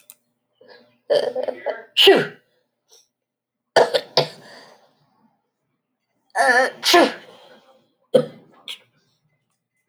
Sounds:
Sneeze